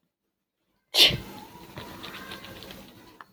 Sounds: Sneeze